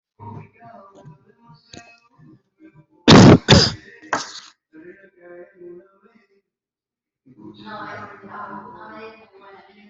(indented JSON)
{
  "expert_labels": [
    {
      "quality": "poor",
      "cough_type": "unknown",
      "dyspnea": false,
      "wheezing": false,
      "stridor": false,
      "choking": false,
      "congestion": false,
      "nothing": true,
      "diagnosis": "healthy cough",
      "severity": "pseudocough/healthy cough"
    }
  ],
  "age": 29,
  "gender": "male",
  "respiratory_condition": true,
  "fever_muscle_pain": false,
  "status": "symptomatic"
}